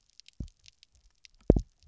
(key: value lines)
label: biophony, double pulse
recorder: SoundTrap 300